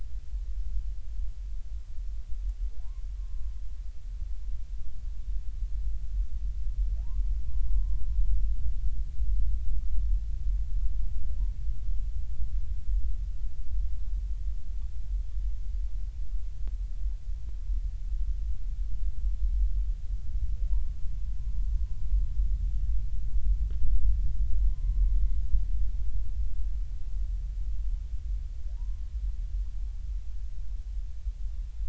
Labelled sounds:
3.2	3.5	humpback whale, 1.0 to 1.1 kHz
7.0	8.0	humpback whale, 0.80 to 1.2 kHz
24.7	25.2	humpback whale, 0.90 to 1.1 kHz
28.8	29.1	humpback whale, 0.83 to 1.1 kHz

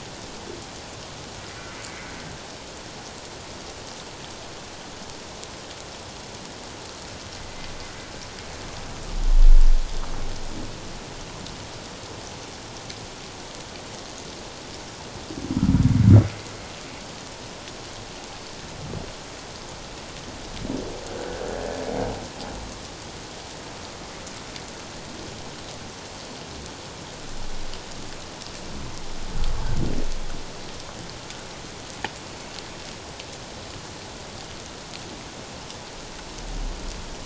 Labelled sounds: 1.8	2.1	humpback whale, 2.0 to 2.3 kHz
21.1	21.8	humpback whale, 1.3 to 1.8 kHz

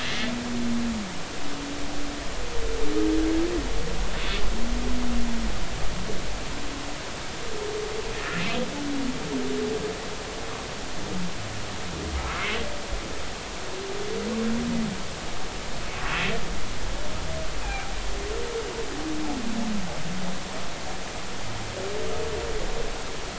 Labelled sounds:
0.0	0.3	humpback whale, 1.9 to 2.2 kHz
8.1	8.5	humpback whale, 1.7 to 1.9 kHz
17.6	17.9	humpback whale, 2.2 to 2.6 kHz

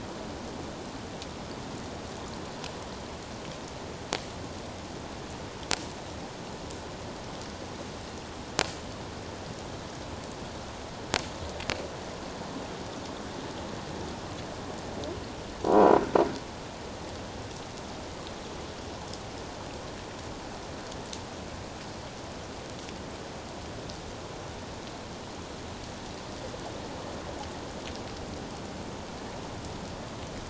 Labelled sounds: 15.6	16.0	croaking sound likely from a nearby submerged object, 0.91 to 1.0 kHz

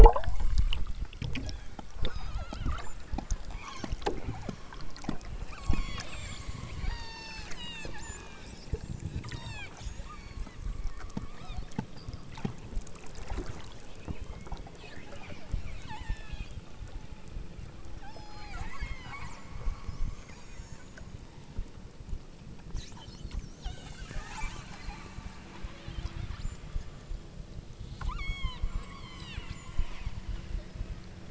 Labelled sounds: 1.5	3.0	killer whale, southern Alaska resident, 0.62 to 7.5 kHz
3.6	4.0	killer whale, southern Alaska resident, 0.75 to 7.2 kHz
4.3	4.6	killer whale, southern Alaska resident, 0.39 to 3.3 kHz
5.5	8.5	killer whale, southern Alaska resident, 0.43 to 8.0 kHz
9.3	9.8	killer whale, southern Alaska resident, 0.55 to 8.0 kHz
10.1	10.6	killer whale, southern Alaska resident, 0.96 to 8.0 kHz
11.3	11.7	killer whale, southern Alaska resident, 0.50 to 6.4 kHz
14.1	14.7	killer whale, southern Alaska resident, 1.9 to 4.7 kHz
15.9	16.5	killer whale, southern Alaska resident, 0.66 to 7.4 kHz
17.9	19.5	killer whale, southern Alaska resident, 0.55 to 8.0 kHz
20.2	20.9	killer whale, southern Alaska resident, 2.3 to 8.0 kHz
23.6	25.4	killer whale, southern Alaska resident, 0.52 to 4.3 kHz
25.8	26.6	killer whale, southern Alaska resident, 0.84 to 7.7 kHz
27.9	31.2	killer whale, southern Alaska resident, 0.59 to 8.0 kHz

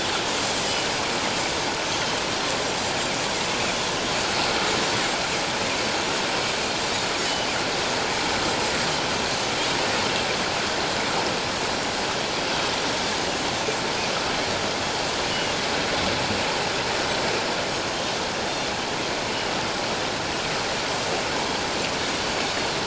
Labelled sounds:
17.7	18.1	Pacific white-sided dolphin, 6.3 to 6.8 kHz

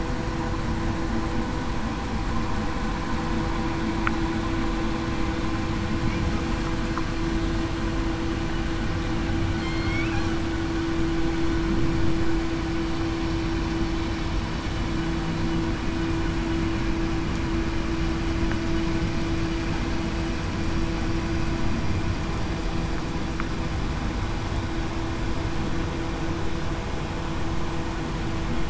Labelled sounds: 9.6	9.9	killer whale, southern resident, 4.2 to 4.3 kHz

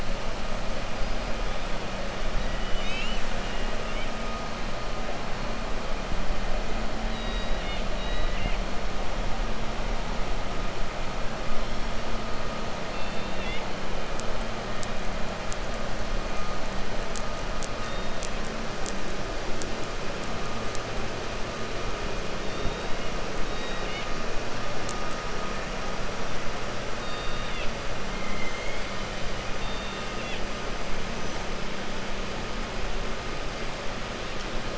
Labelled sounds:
2.3	3.3	killer whale, 1.9 to 7.9 kHz
7.0	8.6	killer whale, 1.2 to 4.9 kHz
12.8	13.7	killer whale, 1.8 to 4.5 kHz
23.4	24.1	killer whale, 1.9 to 4.7 kHz
26.9	27.7	killer whale, 2.0 to 4.7 kHz
28.1	28.8	killer whale, 2.0 to 3.2 kHz
29.5	30.4	killer whale, 2.0 to 4.6 kHz

